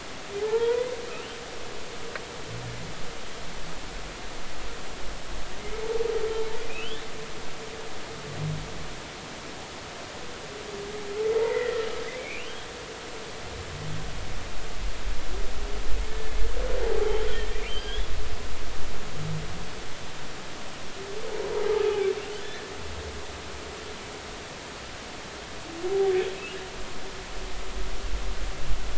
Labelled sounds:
0.4	0.8	humpback whale, 0.80 to 1.9 kHz
1.1	1.4	humpback whale, 2.4 to 3.2 kHz
5.6	5.8	humpback whale, 2.0 to 2.2 kHz
6.7	7.0	humpback whale, 2.3 to 3.7 kHz
11.4	12.7	humpback whale, 1.8 to 3.4 kHz
16.1	16.4	humpback whale, 1.7 to 1.8 kHz
17.7	18.1	humpback whale, 1.5 to 3.7 kHz

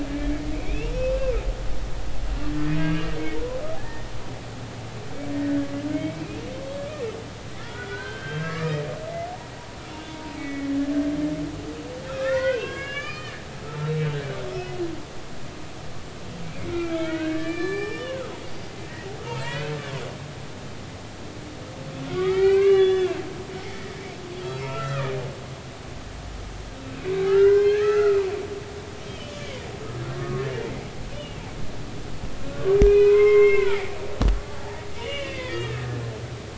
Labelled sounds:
0.1	0.9	humpback whale, 1.6 to 2.8 kHz
2.6	4.1	humpback whale, 1.6 to 2.9 kHz
5.9	6.2	humpback whale, 2.1 to 2.4 kHz
7.6	8.9	humpback whale, 1.1 to 3.3 kHz
10.1	10.7	humpback whale, 0.90 to 2.3 kHz
12.1	13.4	humpback whale, 0.90 to 5.9 kHz
13.7	14.8	humpback whale, 2.1 to 2.7 kHz
16.4	18.4	humpback whale, 1.1 to 5.4 kHz
19.3	19.8	humpback whale, 0.86 to 3.1 kHz
22.1	23.2	humpback whale, 0.99 to 6.4 kHz
23.7	23.9	humpback whale, 1.8 to 2.0 kHz
24.3	25.2	humpback whale, 1.1 to 5.4 kHz
26.9	28.2	humpback whale, 0.96 to 5.4 kHz
29.0	29.3	humpback whale, 2.9 to 3.3 kHz
30.2	30.5	humpback whale, 1.1 to 1.3 kHz
31.1	31.4	humpback whale, 2.6 to 3.1 kHz
32.5	33.8	humpback whale, 0.86 to 2.7 kHz
34.6	35.8	humpback whale, 1.2 to 3.6 kHz

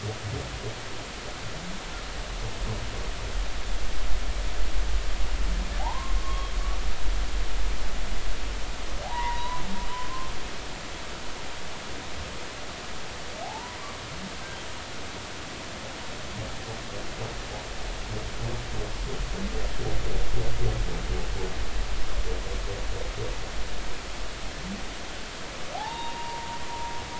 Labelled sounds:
5.8	6.5	humpback whale, 0.80 to 1.2 kHz
9.0	9.6	humpback whale, 0.80 to 4.0 kHz
13.4	13.8	humpback whale, 0.80 to 1.1 kHz
25.7	26.6	humpback whale, 0.80 to 3.8 kHz

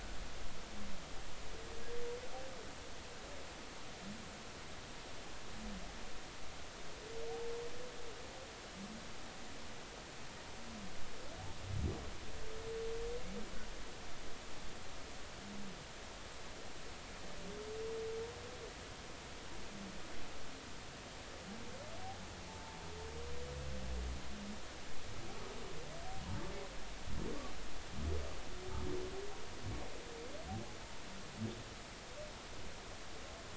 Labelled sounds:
22.5	22.8	humpback whale, 0.83 to 0.93 kHz

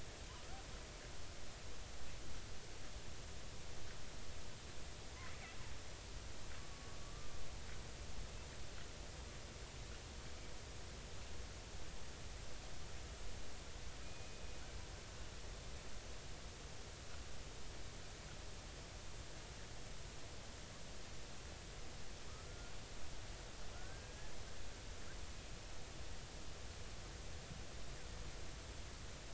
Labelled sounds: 0.3	0.6	killer whale, Bigg's (transient), 0.96 to 1.5 kHz
6.6	7.4	killer whale, Bigg's (transient), 1.1 to 1.2 kHz
14.0	14.4	killer whale, Bigg's (transient), 2.4 to 2.6 kHz
22.3	22.7	killer whale, Bigg's (transient), 1.1 to 1.5 kHz
23.7	24.4	killer whale, Bigg's (transient), 1.3 to 1.8 kHz

